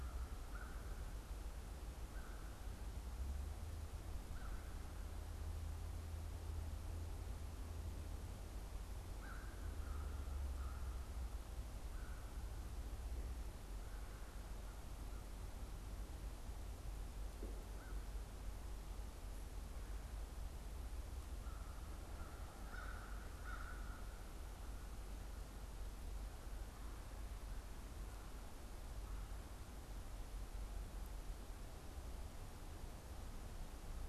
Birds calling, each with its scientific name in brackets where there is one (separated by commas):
American Crow (Corvus brachyrhynchos)